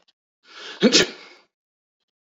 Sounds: Sneeze